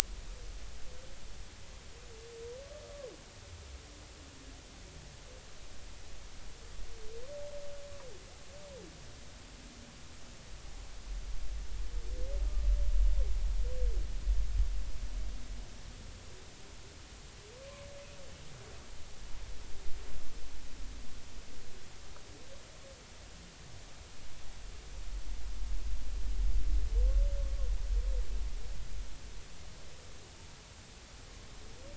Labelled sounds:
2.8	3.1	humpback whale, 0.99 to 1.3 kHz

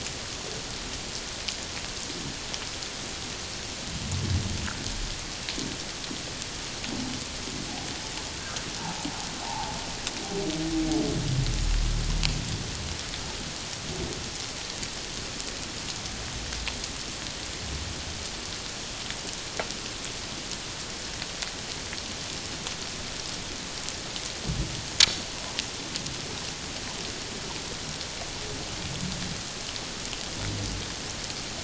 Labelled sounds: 9.4	9.8	humpback whale, 0.78 to 0.97 kHz

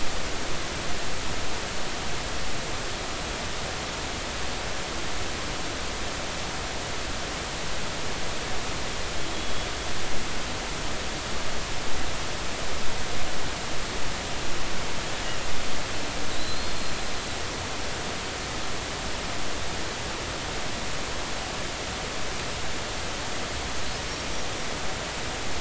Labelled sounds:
9.3	9.7	killer whale, Bigg's (transient), 3.3 to 3.4 kHz
16.3	16.9	killer whale, Bigg's (transient), 3.9 to 4.4 kHz

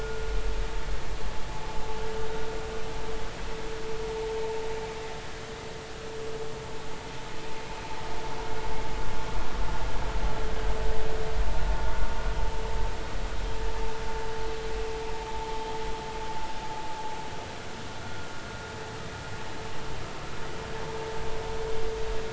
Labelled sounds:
18.0	18.3	vessel noise, 1.3 to 1.5 kHz

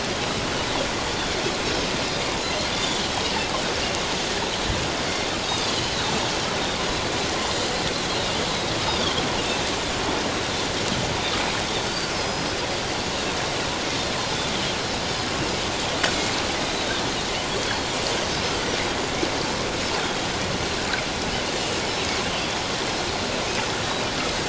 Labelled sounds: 2.4	3.0	Pacific white-sided dolphin, 3.3 to 4.3 kHz
5.4	5.7	Pacific white-sided dolphin, 3.4 to 3.9 kHz
8.8	9.2	Pacific white-sided dolphin, 3.1 to 3.8 kHz
12.1	12.6	Pacific white-sided dolphin, 4.9 to 5.5 kHz
16.6	17.9	Pacific white-sided dolphin, 3.2 to 4.1 kHz

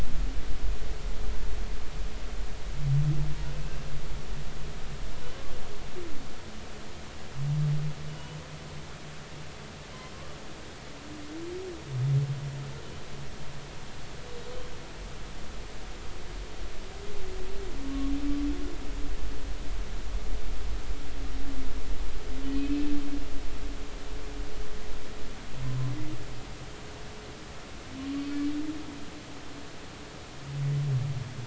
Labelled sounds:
8.1	8.4	humpback whale, 2.8 to 3.0 kHz
17.8	18.1	humpback whale, 1.0 to 1.2 kHz
22.4	22.9	humpback whale, 2.4 to 3.2 kHz

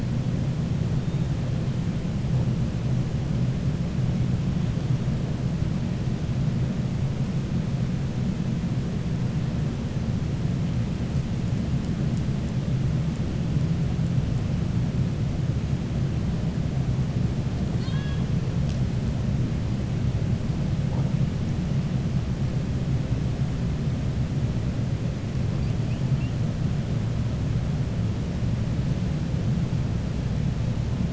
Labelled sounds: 17.7	18.2	killer whale, 1.0 to 5.1 kHz

